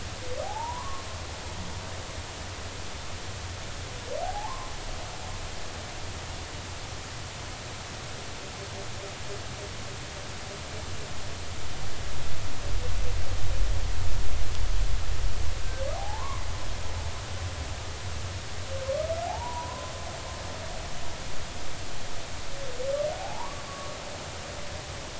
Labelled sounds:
0.4	1.0	humpback whale, 0.80 to 1.2 kHz
4.2	4.7	humpback whale, 0.80 to 1.2 kHz
15.9	16.4	humpback whale, 0.80 to 1.2 kHz
19.3	19.9	humpback whale, 0.80 to 1.1 kHz
23.1	23.9	humpback whale, 0.80 to 1.2 kHz

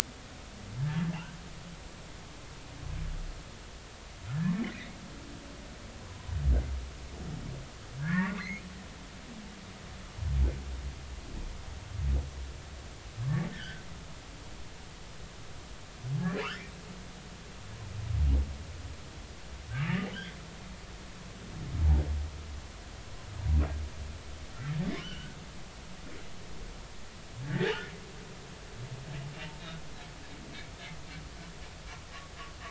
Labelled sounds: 0.8	1.1	humpback whale, 1.5 to 1.8 kHz
4.5	5.0	humpback whale, 1.8 to 2.3 kHz
6.0	6.3	humpback whale, 0.96 to 1.1 kHz
8.0	8.7	humpback whale, 1.0 to 2.5 kHz
13.2	13.8	humpback whale, 0.99 to 1.9 kHz
16.4	16.7	humpback whale, 0.93 to 3.4 kHz
19.9	20.4	humpback whale, 1.7 to 3.5 kHz
25.0	26.4	humpback whale, 1.4 to 3.1 kHz
27.4	27.7	humpback whale, 1.4 to 2.0 kHz

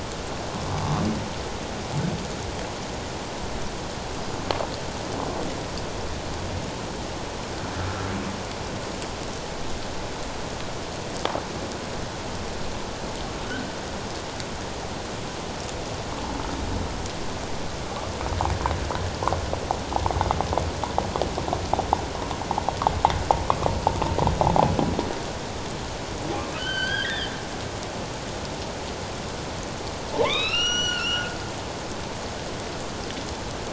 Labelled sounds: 26.6	27.3	humpback whale, 1.4 to 4.9 kHz
30.1	31.3	humpback whale, 0.81 to 7.4 kHz

